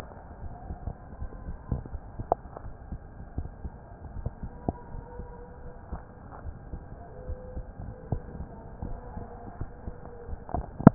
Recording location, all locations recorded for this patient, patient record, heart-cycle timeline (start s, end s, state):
aortic valve (AV)
aortic valve (AV)+pulmonary valve (PV)+tricuspid valve (TV)+mitral valve (MV)
#Age: Adolescent
#Sex: Male
#Height: 155.0 cm
#Weight: 53.0 kg
#Pregnancy status: False
#Murmur: Absent
#Murmur locations: nan
#Most audible location: nan
#Systolic murmur timing: nan
#Systolic murmur shape: nan
#Systolic murmur grading: nan
#Systolic murmur pitch: nan
#Systolic murmur quality: nan
#Diastolic murmur timing: nan
#Diastolic murmur shape: nan
#Diastolic murmur grading: nan
#Diastolic murmur pitch: nan
#Diastolic murmur quality: nan
#Outcome: Normal
#Campaign: 2015 screening campaign
0.00	3.34	unannotated
3.34	3.50	S1
3.50	3.62	systole
3.62	3.72	S2
3.72	4.12	diastole
4.12	4.30	S1
4.30	4.39	systole
4.39	4.52	S2
4.52	4.91	diastole
4.91	5.04	S1
5.04	5.16	systole
5.16	5.28	S2
5.28	5.61	diastole
5.61	5.75	S1
5.75	5.90	systole
5.90	6.01	S2
6.01	6.43	diastole
6.43	6.56	S1
6.56	6.70	systole
6.70	6.82	S2
6.82	7.26	diastole
7.26	7.38	S1
7.38	7.54	systole
7.54	7.66	S2
7.66	8.10	diastole
8.10	8.22	S1
8.22	8.36	systole
8.36	8.48	S2
8.48	8.84	diastole
8.84	8.98	S1
8.98	9.13	systole
9.13	9.26	S2
9.26	9.60	diastole
9.60	9.70	S1
9.70	9.84	systole
9.84	9.94	S2
9.94	10.26	diastole
10.26	10.40	S1
10.40	10.54	systole
10.54	10.66	S2
10.66	10.94	unannotated